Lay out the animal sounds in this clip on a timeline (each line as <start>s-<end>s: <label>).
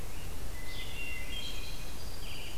0.0s-2.6s: Red-eyed Vireo (Vireo olivaceus)
0.4s-1.9s: Hermit Thrush (Catharus guttatus)
1.2s-2.6s: Black-throated Green Warbler (Setophaga virens)